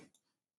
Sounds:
Throat clearing